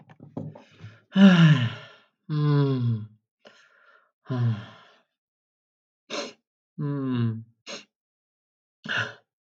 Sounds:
Sigh